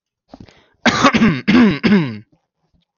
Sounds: Throat clearing